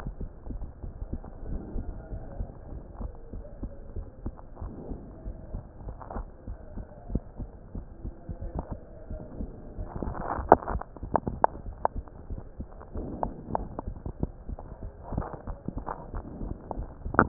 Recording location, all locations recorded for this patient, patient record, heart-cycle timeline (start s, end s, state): pulmonary valve (PV)
aortic valve (AV)+pulmonary valve (PV)+tricuspid valve (TV)+mitral valve (MV)
#Age: Child
#Sex: Female
#Height: 115.0 cm
#Weight: 15.7 kg
#Pregnancy status: False
#Murmur: Absent
#Murmur locations: nan
#Most audible location: nan
#Systolic murmur timing: nan
#Systolic murmur shape: nan
#Systolic murmur grading: nan
#Systolic murmur pitch: nan
#Systolic murmur quality: nan
#Diastolic murmur timing: nan
#Diastolic murmur shape: nan
#Diastolic murmur grading: nan
#Diastolic murmur pitch: nan
#Diastolic murmur quality: nan
#Outcome: Normal
#Campaign: 2015 screening campaign
0.00	0.63	unannotated
0.63	0.80	diastole
0.80	0.94	S1
0.94	1.12	systole
1.12	1.22	S2
1.22	1.46	diastole
1.46	1.62	S1
1.62	1.72	systole
1.72	1.86	S2
1.86	2.08	diastole
2.08	2.22	S1
2.22	2.36	systole
2.36	2.50	S2
2.50	2.68	diastole
2.68	2.82	S1
2.82	2.96	systole
2.96	3.12	S2
3.12	3.34	diastole
3.34	3.46	S1
3.46	3.62	systole
3.62	3.72	S2
3.72	3.96	diastole
3.96	4.06	S1
4.06	4.22	systole
4.22	4.32	S2
4.32	4.58	diastole
4.58	4.72	S1
4.72	4.88	systole
4.88	5.02	S2
5.02	5.26	diastole
5.26	5.36	S1
5.36	5.52	systole
5.52	5.64	S2
5.64	5.84	diastole
5.84	5.96	S1
5.96	6.12	systole
6.12	6.26	S2
6.26	6.48	diastole
6.48	6.56	S1
6.56	6.74	systole
6.74	6.84	S2
6.84	7.10	diastole
7.10	7.24	S1
7.24	7.38	systole
7.38	7.50	S2
7.50	7.72	diastole
7.72	7.84	S1
7.84	8.01	systole
8.01	8.14	S2
8.14	8.38	diastole
8.38	8.52	S1
8.52	8.68	systole
8.68	8.80	S2
8.80	9.08	diastole
9.08	9.20	S1
9.20	9.36	systole
9.36	9.50	S2
9.50	9.76	diastole
9.76	9.88	S1
9.88	10.00	systole
10.00	10.14	S2
10.14	10.36	diastole
10.36	10.50	S1
10.50	10.68	systole
10.68	10.82	S2
10.82	11.02	diastole
11.02	11.12	S1
11.12	11.26	systole
11.26	11.42	S2
11.42	11.66	diastole
11.66	11.76	S1
11.76	11.92	systole
11.92	12.06	S2
12.06	12.28	diastole
12.28	12.44	S1
12.44	12.57	systole
12.57	12.68	S2
12.68	12.94	diastole
12.94	13.12	S1
13.12	13.22	systole
13.22	13.36	S2
13.36	13.56	diastole
13.56	13.72	S1
13.72	13.84	systole
13.84	13.98	S2
13.98	14.22	diastole
14.22	17.28	unannotated